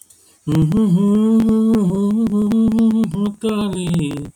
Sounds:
Sigh